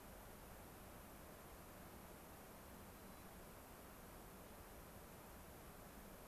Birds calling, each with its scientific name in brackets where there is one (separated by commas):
White-crowned Sparrow (Zonotrichia leucophrys)